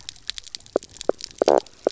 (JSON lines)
{"label": "biophony, knock croak", "recorder": "SoundTrap 300"}